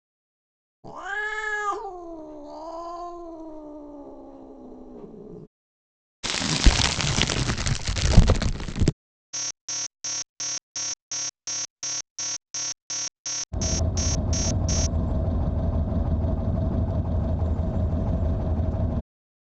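At 0.83 seconds, the sound of a cat begins. After that, at 6.23 seconds, there is crackling. Next, at 9.33 seconds, an alarm is heard. While that goes on, at 13.51 seconds, a car can be heard.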